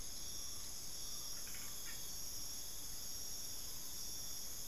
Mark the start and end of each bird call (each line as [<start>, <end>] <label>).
[0.00, 4.67] Collared Forest-Falcon (Micrastur semitorquatus)